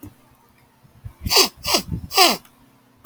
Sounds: Sniff